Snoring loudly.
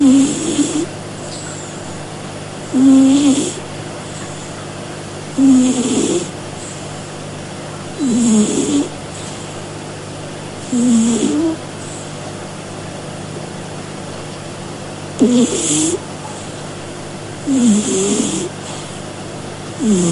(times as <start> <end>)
0.0 0.9, 2.7 3.6, 5.3 6.3, 7.9 8.9, 10.7 11.6, 15.2 16.0, 17.4 18.5, 19.7 20.1